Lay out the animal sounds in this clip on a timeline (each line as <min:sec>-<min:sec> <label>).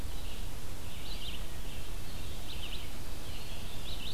0:00.0-0:04.1 Red-eyed Vireo (Vireo olivaceus)